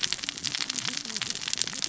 {"label": "biophony, cascading saw", "recorder": "SoundTrap 600 or HydroMoth"}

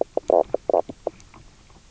{"label": "biophony, knock croak", "recorder": "SoundTrap 300"}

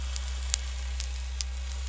{"label": "anthrophony, boat engine", "recorder": "SoundTrap 300"}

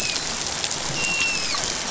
{"label": "biophony, dolphin", "recorder": "SoundTrap 500"}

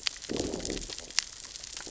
{"label": "biophony, growl", "recorder": "SoundTrap 600 or HydroMoth"}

